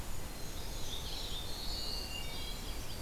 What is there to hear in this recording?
Red-eyed Vireo, Brown Creeper, Black-throated Blue Warbler, Wood Thrush, Yellow-rumped Warbler